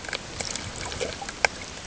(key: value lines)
label: ambient
recorder: HydroMoth